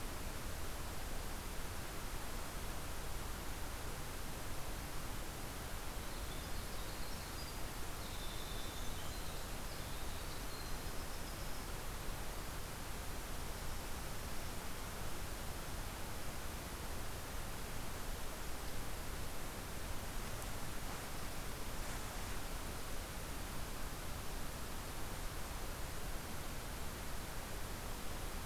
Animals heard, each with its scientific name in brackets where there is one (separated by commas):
Winter Wren (Troglodytes hiemalis)